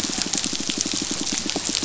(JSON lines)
{"label": "biophony, pulse", "recorder": "SoundTrap 500"}